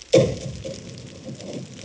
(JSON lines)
{"label": "anthrophony, bomb", "recorder": "HydroMoth"}